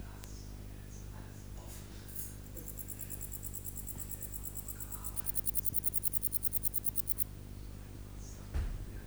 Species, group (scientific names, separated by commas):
Pholidoptera stankoi, Orthoptera